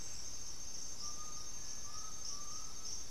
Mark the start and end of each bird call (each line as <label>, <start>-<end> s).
Black-throated Antbird (Myrmophylax atrothorax), 0.9-3.1 s
Cinereous Tinamou (Crypturellus cinereus), 1.5-2.3 s